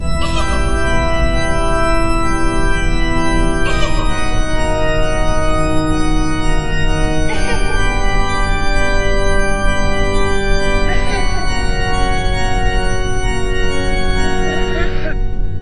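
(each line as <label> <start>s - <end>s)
Eerie music is playing. 0.0s - 15.6s
A spooky voice laughs. 3.6s - 4.6s
A spooky voice laughs. 7.2s - 7.8s
A spooky voice laughs. 10.9s - 11.4s
A spooky voice laughing slowly. 14.5s - 15.3s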